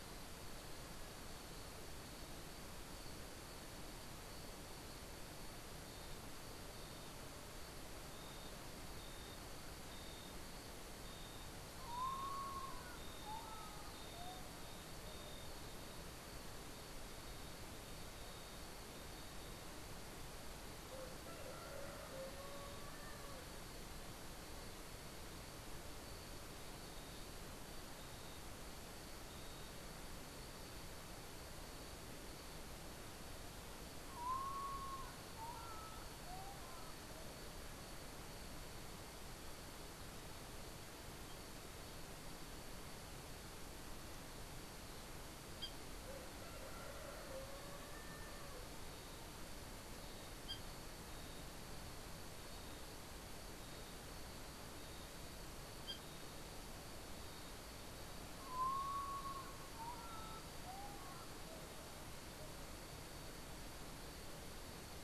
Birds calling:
Common Potoo (Nyctibius griseus)

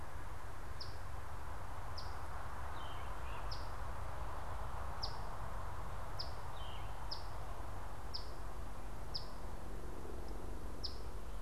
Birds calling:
Eastern Phoebe (Sayornis phoebe)
Yellow-throated Vireo (Vireo flavifrons)
Great Crested Flycatcher (Myiarchus crinitus)

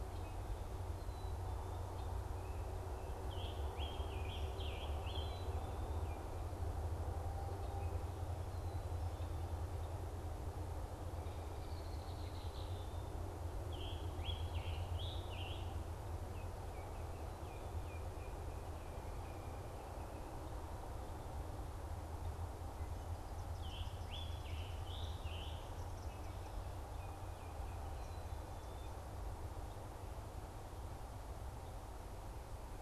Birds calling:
Scarlet Tanager (Piranga olivacea)
Baltimore Oriole (Icterus galbula)
Red-winged Blackbird (Agelaius phoeniceus)

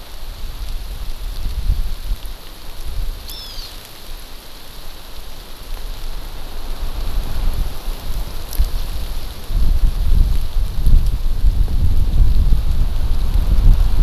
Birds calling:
Hawaiian Hawk (Buteo solitarius)

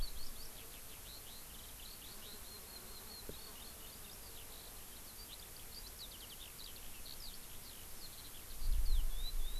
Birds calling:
Eurasian Skylark (Alauda arvensis)

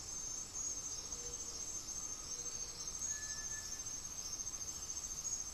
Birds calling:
Gray-fronted Dove (Leptotila rufaxilla)
Cinereous Tinamou (Crypturellus cinereus)

